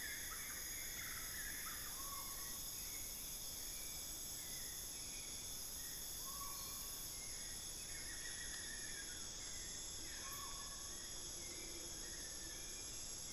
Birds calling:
Collared Forest-Falcon (Micrastur semitorquatus)
Amazonian Motmot (Momotus momota)
Buff-throated Woodcreeper (Xiphorhynchus guttatus)
Long-billed Woodcreeper (Nasica longirostris)
Black-fronted Nunbird (Monasa nigrifrons)
Hauxwell's Thrush (Turdus hauxwelli)

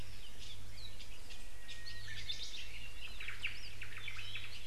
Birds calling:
Apapane (Himatione sanguinea)
Japanese Bush Warbler (Horornis diphone)
Northern Cardinal (Cardinalis cardinalis)
Omao (Myadestes obscurus)

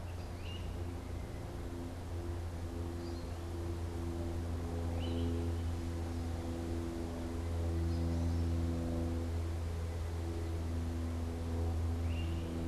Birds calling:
American Goldfinch (Spinus tristis)
Great Crested Flycatcher (Myiarchus crinitus)

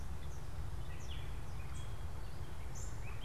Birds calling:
Gray Catbird (Dumetella carolinensis)

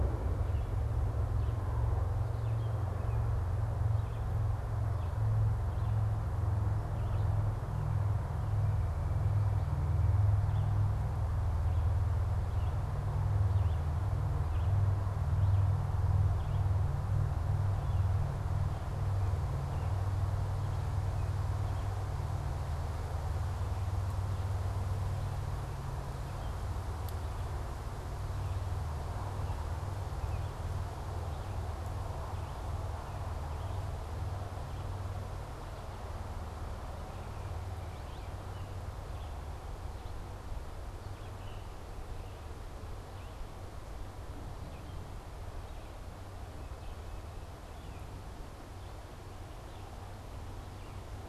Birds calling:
Red-eyed Vireo (Vireo olivaceus)
Baltimore Oriole (Icterus galbula)
Tufted Titmouse (Baeolophus bicolor)

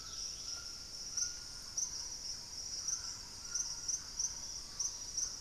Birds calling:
Dusky-throated Antshrike (Thamnomanes ardesiacus)
Thrush-like Wren (Campylorhynchus turdinus)
Dusky-capped Greenlet (Pachysylvia hypoxantha)
White-throated Toucan (Ramphastos tucanus)

